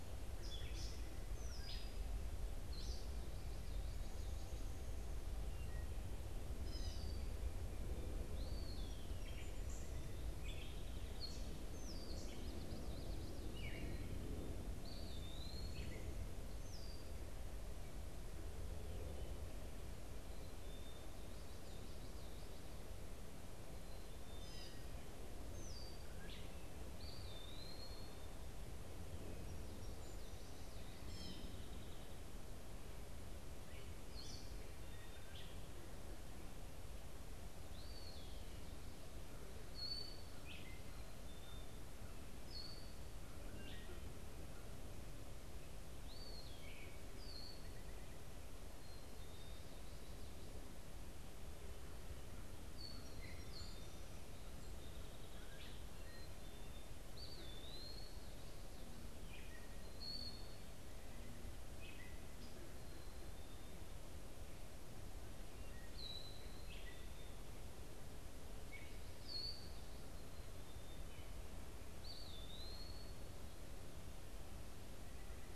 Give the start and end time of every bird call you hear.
[0.00, 3.06] Gray Catbird (Dumetella carolinensis)
[5.46, 14.36] Gray Catbird (Dumetella carolinensis)
[8.26, 9.26] Eastern Wood-Pewee (Contopus virens)
[11.56, 12.26] Red-winged Blackbird (Agelaius phoeniceus)
[12.36, 13.26] Common Yellowthroat (Geothlypis trichas)
[14.76, 15.86] Eastern Wood-Pewee (Contopus virens)
[16.36, 17.16] Red-winged Blackbird (Agelaius phoeniceus)
[20.46, 21.06] Black-capped Chickadee (Poecile atricapillus)
[24.16, 24.86] Gray Catbird (Dumetella carolinensis)
[25.46, 26.06] Red-winged Blackbird (Agelaius phoeniceus)
[26.96, 28.26] Eastern Wood-Pewee (Contopus virens)
[29.36, 30.76] Song Sparrow (Melospiza melodia)
[30.96, 31.56] Gray Catbird (Dumetella carolinensis)
[33.76, 35.76] Gray Catbird (Dumetella carolinensis)
[37.56, 38.66] Eastern Wood-Pewee (Contopus virens)
[39.56, 47.86] Gray Catbird (Dumetella carolinensis)
[48.66, 49.86] Black-capped Chickadee (Poecile atricapillus)
[52.56, 54.06] Gray Catbird (Dumetella carolinensis)
[53.16, 54.06] Black-capped Chickadee (Poecile atricapillus)
[54.46, 55.66] Song Sparrow (Melospiza melodia)
[56.06, 56.86] Black-capped Chickadee (Poecile atricapillus)
[57.06, 58.16] Eastern Wood-Pewee (Contopus virens)
[58.96, 60.76] Gray Catbird (Dumetella carolinensis)
[61.56, 62.66] Gray Catbird (Dumetella carolinensis)
[65.56, 71.26] Gray Catbird (Dumetella carolinensis)
[70.36, 71.16] Black-capped Chickadee (Poecile atricapillus)
[71.76, 73.36] Eastern Wood-Pewee (Contopus virens)

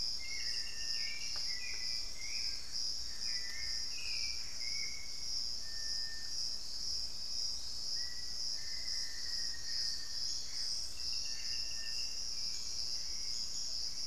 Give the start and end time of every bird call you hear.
[0.00, 5.33] Hauxwell's Thrush (Turdus hauxwelli)
[0.00, 14.07] Little Tinamou (Crypturellus soui)
[2.33, 4.93] Gray Antbird (Cercomacra cinerascens)
[7.83, 10.63] Black-faced Antthrush (Formicarius analis)
[9.33, 14.07] Hauxwell's Thrush (Turdus hauxwelli)
[9.53, 11.93] Gray Antbird (Cercomacra cinerascens)

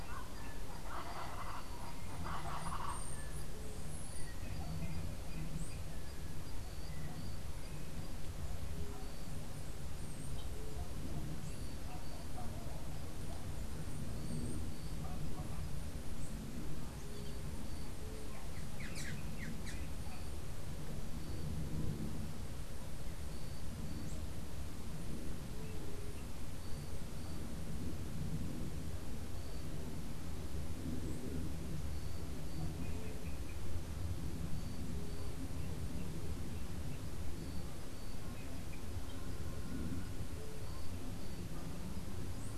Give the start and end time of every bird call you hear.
[0.00, 3.00] Colombian Chachalaca (Ortalis columbiana)

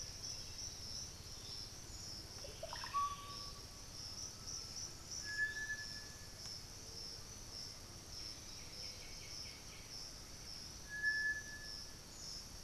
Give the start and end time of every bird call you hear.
[0.00, 1.03] Black-billed Thrush (Turdus ignobilis)
[0.00, 12.63] Piratic Flycatcher (Legatus leucophaius)
[0.03, 1.83] Black-throated Antbird (Myrmophylax atrothorax)
[2.23, 3.93] Russet-backed Oropendola (Psarocolius angustifrons)
[3.93, 6.23] Undulated Tinamou (Crypturellus undulatus)
[8.03, 9.83] Black-throated Antbird (Myrmophylax atrothorax)
[8.13, 10.13] White-winged Becard (Pachyramphus polychopterus)

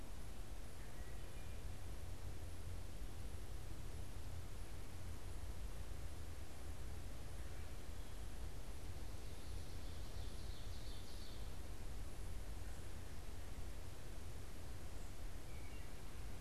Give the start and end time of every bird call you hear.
[0.00, 16.41] Wood Thrush (Hylocichla mustelina)
[9.55, 11.75] Ovenbird (Seiurus aurocapilla)

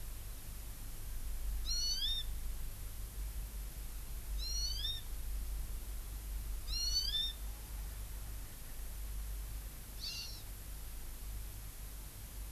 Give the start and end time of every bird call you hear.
[1.64, 2.24] Hawaii Amakihi (Chlorodrepanis virens)
[4.34, 5.04] Hawaii Amakihi (Chlorodrepanis virens)
[6.64, 7.34] Hawaii Amakihi (Chlorodrepanis virens)
[10.04, 10.44] Hawaii Amakihi (Chlorodrepanis virens)

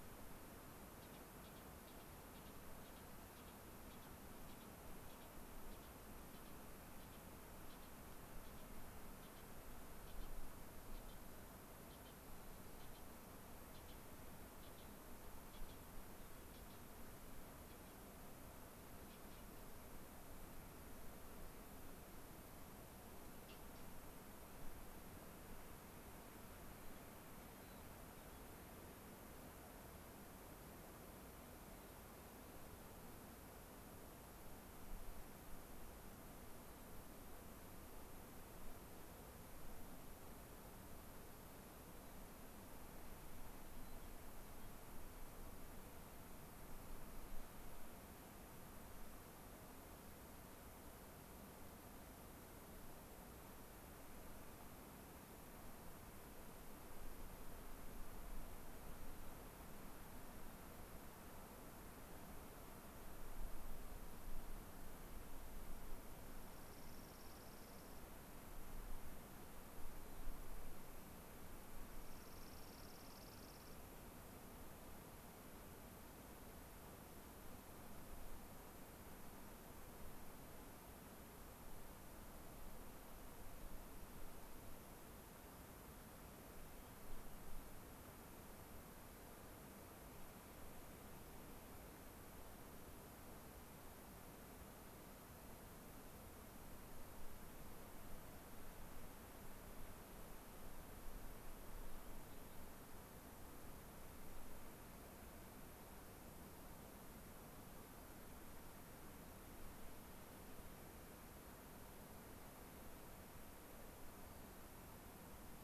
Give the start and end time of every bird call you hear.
[26.72, 28.62] unidentified bird
[43.72, 44.72] unidentified bird
[66.42, 68.02] Dark-eyed Junco (Junco hyemalis)
[71.92, 73.82] Dark-eyed Junco (Junco hyemalis)
[86.82, 87.42] unidentified bird

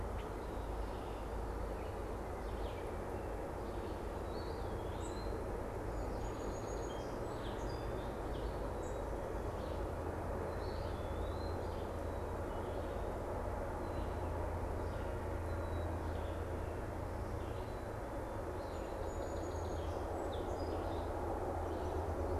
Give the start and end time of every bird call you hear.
[0.00, 21.92] Red-eyed Vireo (Vireo olivaceus)
[0.52, 1.42] Red-winged Blackbird (Agelaius phoeniceus)
[4.22, 5.32] Eastern Wood-Pewee (Contopus virens)
[5.72, 8.72] Song Sparrow (Melospiza melodia)
[10.62, 11.62] Eastern Wood-Pewee (Contopus virens)
[18.42, 21.22] Song Sparrow (Melospiza melodia)

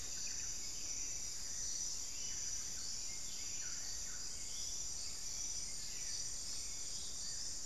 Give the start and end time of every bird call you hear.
[0.00, 4.48] Solitary Black Cacique (Cacicus solitarius)
[0.00, 7.65] Buff-throated Saltator (Saltator maximus)

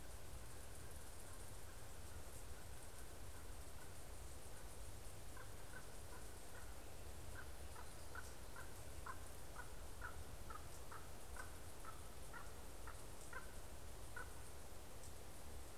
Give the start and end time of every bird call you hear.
[0.00, 14.60] Common Raven (Corvus corax)

